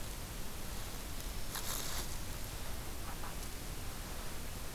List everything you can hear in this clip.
forest ambience